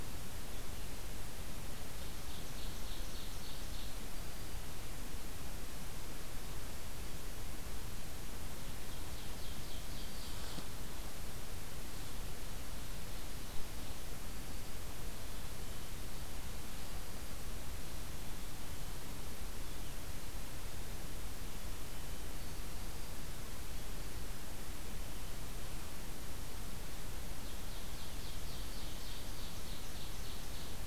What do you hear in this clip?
Ovenbird